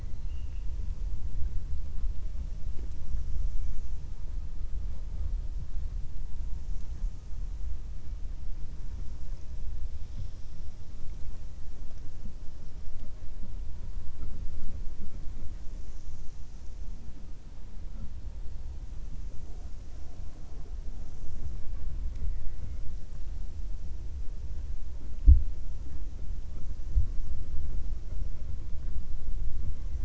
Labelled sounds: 22.0	22.8	killer whale, 0.55 to 2.9 kHz

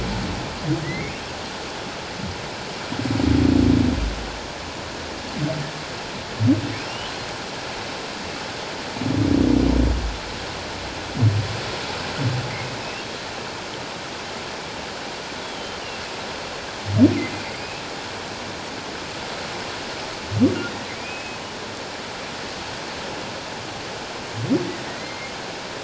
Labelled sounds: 0.8	1.1	humpback whale, 1.8 to 2.3 kHz
6.9	7.1	humpback whale, 2.7 to 3.1 kHz
20.9	21.4	humpback whale, 2.2 to 2.6 kHz
24.9	25.3	humpback whale, 1.8 to 2.2 kHz

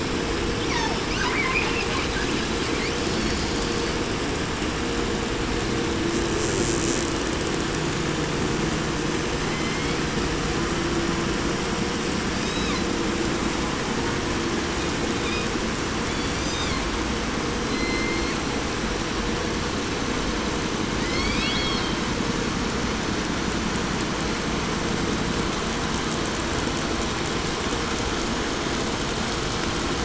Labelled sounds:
0.6	1.1	killer whale, southern resident, call S36, 0.51 to 7.4 kHz
1.1	4.1	killer whale, 0.49 to 7.8 kHz
6.0	7.9	killer whale, 4.7 to 8.0 kHz
9.2	10.2	killer whale, southern resident, J pod, call S01, 0.94 to 8.0 kHz
12.3	13.0	killer whale, 0.79 to 8.0 kHz
14.7	15.5	killer whale, 1.7 to 5.4 kHz
15.9	16.9	killer whale, 1.6 to 8.0 kHz
17.5	18.6	killer whale, southern resident, J pod, call S01, 1.2 to 8.0 kHz
20.9	22.2	killer whale, 1.1 to 8.0 kHz

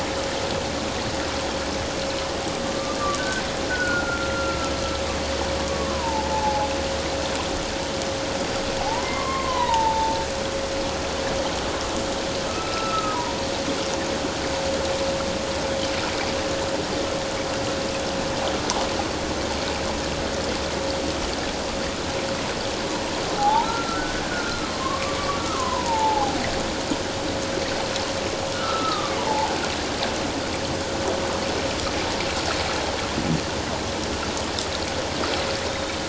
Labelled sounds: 2.6	3.4	humpback whale, 1.1 to 1.6 kHz
3.7	4.7	humpback whale, 1.3 to 1.6 kHz
5.6	6.7	humpback whale, 0.78 to 1.2 kHz
8.8	10.2	humpback whale, 0.78 to 4.1 kHz
12.5	13.2	humpback whale, 1.2 to 1.4 kHz
23.4	26.4	humpback whale, 0.78 to 1.6 kHz
28.5	29.5	humpback whale, 0.78 to 1.6 kHz
35.7	36.0	humpback whale, 3.5 to 3.8 kHz

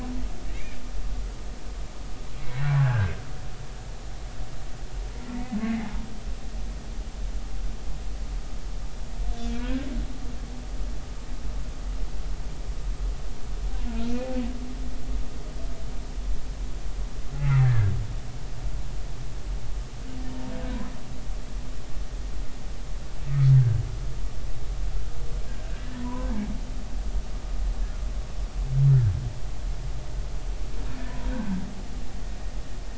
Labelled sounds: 0.5	0.8	humpback whale, 2.0 to 2.5 kHz
2.6	3.1	humpback whale, 1.4 to 1.7 kHz
5.6	5.9	humpback whale, 2.0 to 2.2 kHz
9.5	9.9	humpback whale, 1.4 to 1.8 kHz
17.4	17.9	humpback whale, 1.4 to 2.2 kHz
23.5	23.8	humpback whale, 1.5 to 1.7 kHz
25.7	26.3	humpback whale, 0.93 to 1.9 kHz
28.9	29.1	humpback whale, 1.5 to 1.9 kHz
31.0	31.6	humpback whale, 1.4 to 2.0 kHz

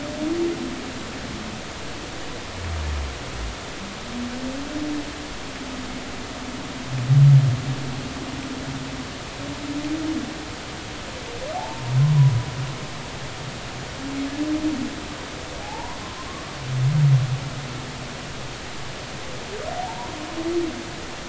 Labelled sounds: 11.5	11.8	humpback whale, 0.80 to 0.96 kHz
15.6	16.0	humpback whale, 0.80 to 1.1 kHz
19.7	20.1	humpback whale, 0.80 to 1.1 kHz

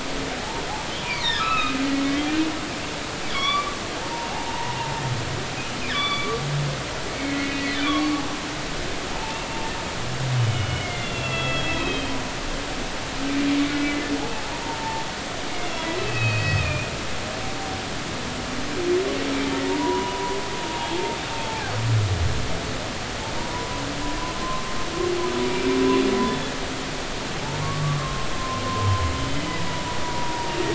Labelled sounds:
0.4	2.3	humpback whale, 0.80 to 5.8 kHz
3.3	4.7	humpback whale, 0.80 to 4.7 kHz
5.9	6.4	humpback whale, 1.1 to 4.7 kHz
7.1	8.1	humpback whale, 1.0 to 3.7 kHz
9.1	9.5	humpback whale, 0.83 to 1.0 kHz
10.5	12.2	humpback whale, 1.3 to 4.0 kHz
12.7	14.1	humpback whale, 1.4 to 2.1 kHz
14.6	16.9	humpback whale, 0.83 to 5.2 kHz
19.6	21.7	humpback whale, 0.80 to 1.0 kHz
23.4	24.7	humpback whale, 0.90 to 1.1 kHz
26.2	26.5	humpback whale, 3.4 to 3.6 kHz
27.6	30.6	humpback whale, 0.90 to 3.1 kHz

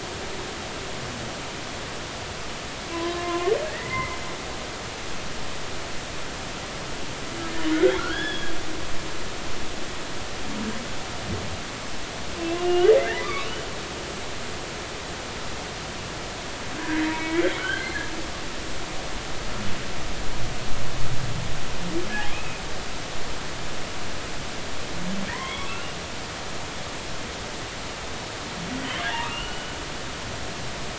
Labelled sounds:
2.9	4.2	humpback whale, 0.96 to 2.2 kHz
8.0	8.5	humpback whale, 1.3 to 3.5 kHz
12.6	13.3	humpback whale, 1.5 to 3.0 kHz
16.8	18.0	humpback whale, 1.3 to 4.3 kHz
22.3	22.6	humpback whale, 2.3 to 2.7 kHz
25.3	26.0	humpback whale, 0.93 to 3.5 kHz
29.0	29.7	humpback whale, 0.83 to 3.1 kHz

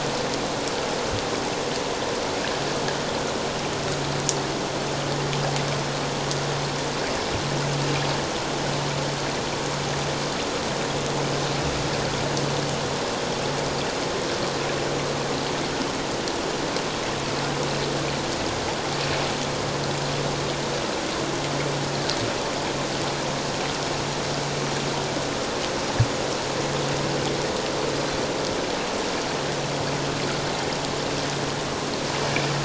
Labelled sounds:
32.2	32.5	water noise, 2.2 to 2.5 kHz

